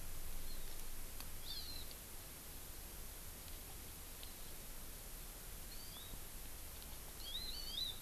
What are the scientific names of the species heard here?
Chlorodrepanis virens